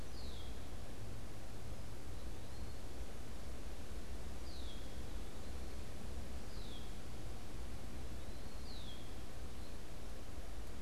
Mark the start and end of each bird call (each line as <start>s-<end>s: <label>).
0.0s-9.4s: Red-winged Blackbird (Agelaius phoeniceus)
0.0s-10.1s: Eastern Wood-Pewee (Contopus virens)